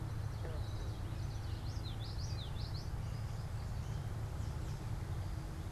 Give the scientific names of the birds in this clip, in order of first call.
Geothlypis trichas